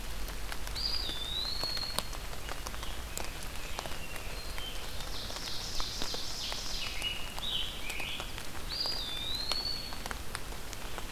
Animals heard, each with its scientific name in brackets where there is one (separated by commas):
Ovenbird (Seiurus aurocapilla), Eastern Wood-Pewee (Contopus virens), Scarlet Tanager (Piranga olivacea)